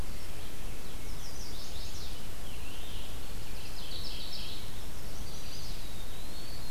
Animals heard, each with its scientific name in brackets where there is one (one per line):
Scarlet Tanager (Piranga olivacea)
Chestnut-sided Warbler (Setophaga pensylvanica)
Mourning Warbler (Geothlypis philadelphia)
Eastern Wood-Pewee (Contopus virens)
Red-eyed Vireo (Vireo olivaceus)